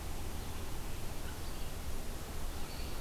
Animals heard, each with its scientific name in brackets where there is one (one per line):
Red-eyed Vireo (Vireo olivaceus)